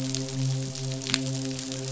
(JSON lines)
{"label": "biophony, midshipman", "recorder": "SoundTrap 500"}